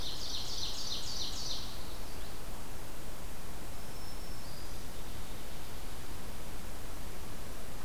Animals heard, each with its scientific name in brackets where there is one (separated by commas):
Ovenbird (Seiurus aurocapilla), Black-throated Green Warbler (Setophaga virens)